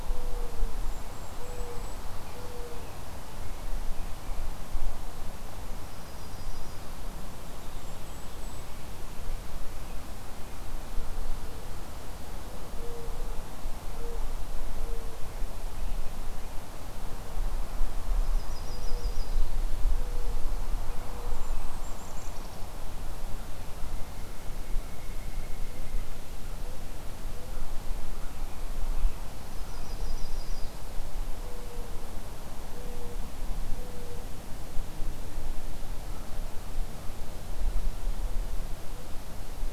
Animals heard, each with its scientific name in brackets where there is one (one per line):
Golden-crowned Kinglet (Regulus satrapa)
Yellow-rumped Warbler (Setophaga coronata)
Pileated Woodpecker (Dryocopus pileatus)
Mourning Dove (Zenaida macroura)
American Robin (Turdus migratorius)